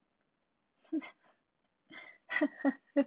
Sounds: Laughter